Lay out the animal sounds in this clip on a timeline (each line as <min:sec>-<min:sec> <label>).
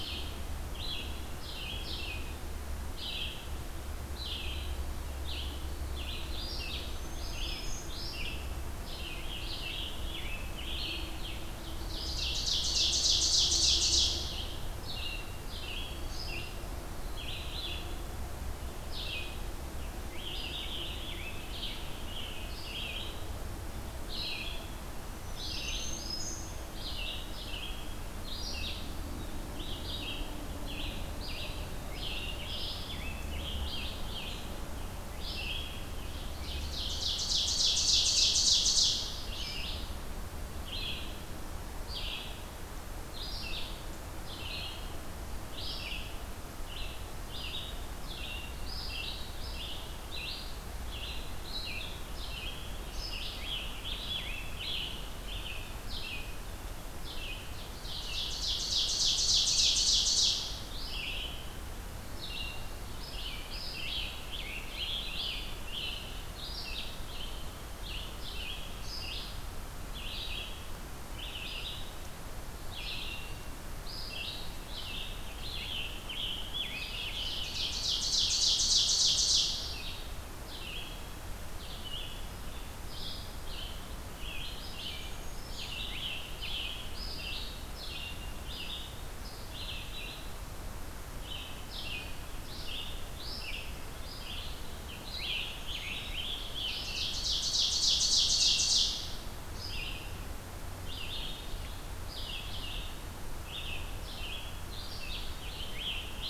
0:00.0-0:35.9 Red-eyed Vireo (Vireo olivaceus)
0:06.9-0:07.9 Black-throated Green Warbler (Setophaga virens)
0:08.9-0:11.7 Scarlet Tanager (Piranga olivacea)
0:11.6-0:14.4 Ovenbird (Seiurus aurocapilla)
0:19.6-0:23.1 Scarlet Tanager (Piranga olivacea)
0:25.2-0:26.6 Black-throated Green Warbler (Setophaga virens)
0:31.5-0:34.5 Scarlet Tanager (Piranga olivacea)
0:36.1-0:38.9 Ovenbird (Seiurus aurocapilla)
0:38.0-1:46.3 Red-eyed Vireo (Vireo olivaceus)
0:52.8-0:55.0 Scarlet Tanager (Piranga olivacea)
0:58.0-1:00.4 Ovenbird (Seiurus aurocapilla)
1:03.3-1:06.2 Scarlet Tanager (Piranga olivacea)
1:15.2-1:17.5 Scarlet Tanager (Piranga olivacea)
1:17.2-1:19.6 Ovenbird (Seiurus aurocapilla)
1:24.8-1:25.8 Black-throated Green Warbler (Setophaga virens)
1:25.5-1:27.4 Scarlet Tanager (Piranga olivacea)
1:34.8-1:37.3 Scarlet Tanager (Piranga olivacea)
1:35.5-1:36.2 Black-throated Green Warbler (Setophaga virens)
1:36.8-1:38.9 Ovenbird (Seiurus aurocapilla)
1:44.9-1:46.3 Scarlet Tanager (Piranga olivacea)